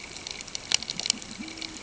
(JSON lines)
{"label": "ambient", "recorder": "HydroMoth"}